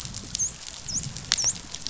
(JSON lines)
{"label": "biophony, dolphin", "recorder": "SoundTrap 500"}